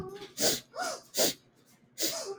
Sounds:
Sniff